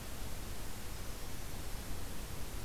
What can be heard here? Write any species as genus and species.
Certhia americana